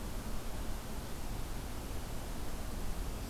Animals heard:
forest ambience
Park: Marsh-Billings-Rockefeller National Historical Park